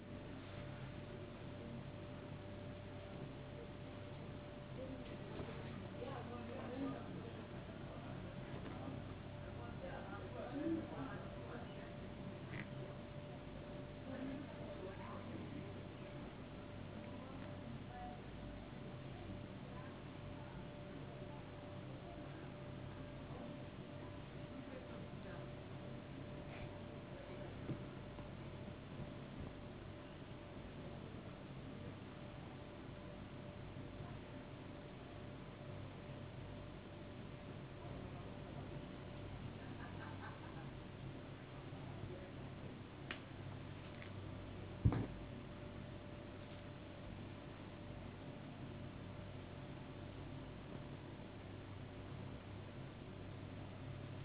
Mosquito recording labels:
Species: no mosquito; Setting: insect culture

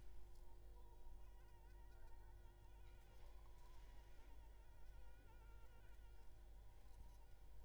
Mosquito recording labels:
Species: Anopheles arabiensis; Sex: female; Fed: unfed; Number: one; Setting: cup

